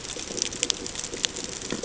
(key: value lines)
label: ambient
recorder: HydroMoth